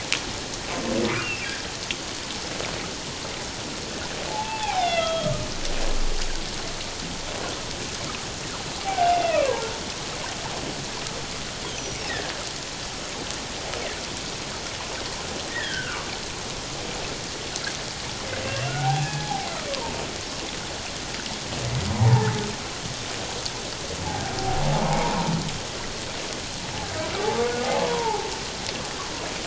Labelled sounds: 1.2	1.5	humpback whale, 2.5 to 2.8 kHz
4.3	5.5	humpback whale, 0.78 to 4.0 kHz
8.8	9.7	humpback whale, 0.78 to 2.8 kHz
11.7	12.0	humpback whale, 5.8 to 6.3 kHz
15.5	16.0	humpback whale, 1.3 to 2.0 kHz
18.4	20.0	humpback whale, 0.78 to 2.8 kHz
22.0	22.4	humpback whale, 0.78 to 1.8 kHz
24.8	25.2	humpback whale, 0.78 to 1.0 kHz
27.8	28.3	humpback whale, 0.78 to 1.1 kHz

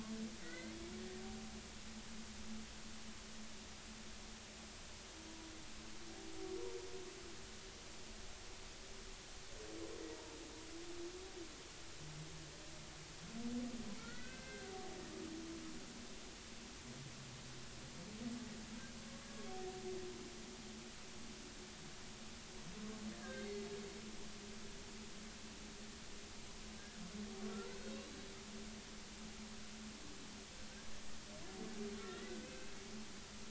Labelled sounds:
0.4	0.8	humpback whale, 1.4 to 2.2 kHz
14.0	14.7	humpback whale, 1.3 to 2.1 kHz
23.1	23.7	humpback whale, 1.5 to 4.4 kHz
27.8	28.1	humpback whale, 2.6 to 2.8 kHz
32.0	32.8	humpback whale, 1.5 to 2.7 kHz

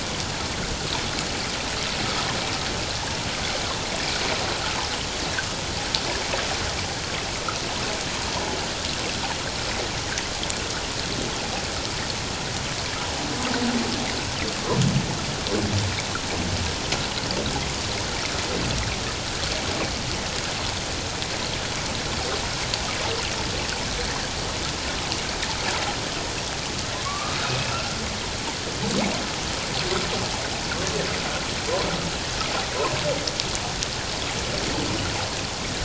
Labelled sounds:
27.0	28.0	humpback whale, 1.0 to 2.8 kHz

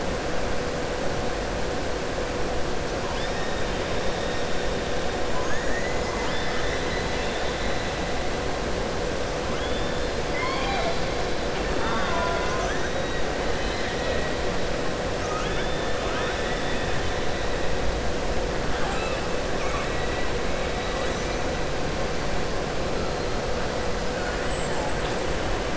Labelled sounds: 5.3	5.9	killer whale, southern resident, 1.0 to 2.1 kHz
10.2	11.0	killer whale, southern resident, 0.69 to 5.3 kHz
11.7	12.8	killer whale, southern resident, 0.61 to 3.7 kHz
13.5	14.3	killer whale, southern resident, 1.3 to 4.1 kHz
15.2	15.9	killer whale, southern resident, 1.2 to 3.6 kHz
18.7	19.2	killer whale, southern resident, 0.78 to 4.0 kHz

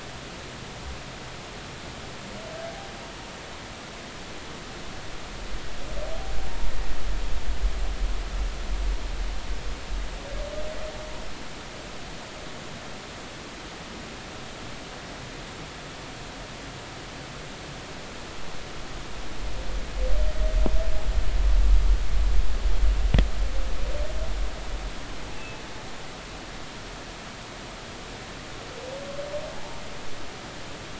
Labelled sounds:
25.3	25.6	humpback whale, 2.5 to 2.8 kHz
29.6	29.8	humpback whale, 0.80 to 0.96 kHz

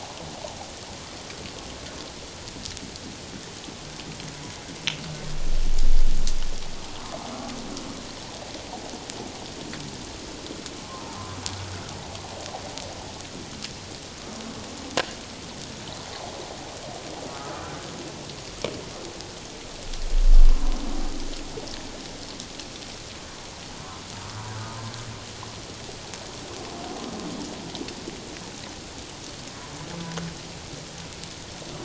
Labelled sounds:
17.3	17.7	humpback whale, 1.1 to 1.5 kHz
20.5	20.8	humpback whale, 0.94 to 1.1 kHz

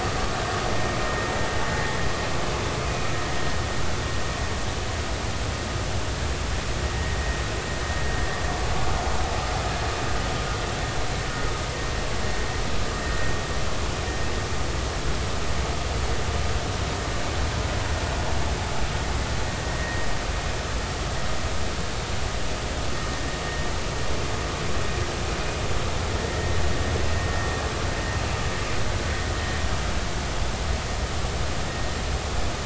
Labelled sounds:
19.8	20.1	vessel noise, 1.8 to 1.9 kHz
26.3	26.5	vessel noise, 1.8 to 2.0 kHz

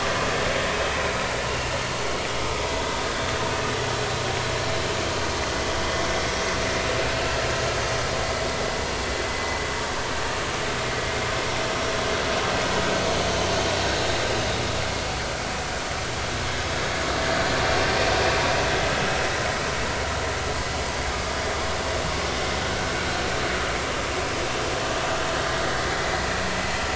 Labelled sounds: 1.5	1.8	vessel noise, 2.7 to 2.8 kHz

